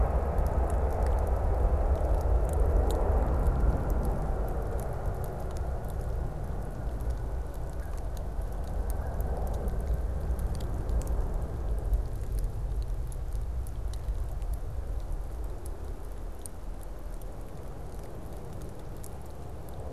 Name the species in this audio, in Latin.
Branta canadensis